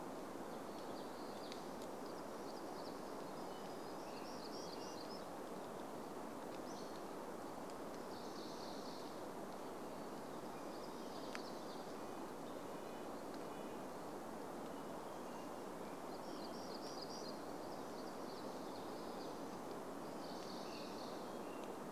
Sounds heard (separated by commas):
warbler song, Red-breasted Nuthatch song, Hammond's Flycatcher song, American Robin song